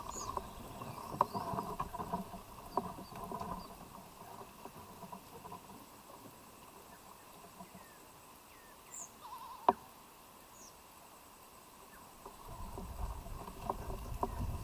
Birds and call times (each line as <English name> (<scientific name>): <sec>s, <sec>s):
African Emerald Cuckoo (Chrysococcyx cupreus): 8.3s
White-eyed Slaty-Flycatcher (Melaenornis fischeri): 8.7s